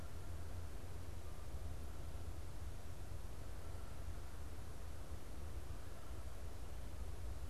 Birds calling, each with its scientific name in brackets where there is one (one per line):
Canada Goose (Branta canadensis)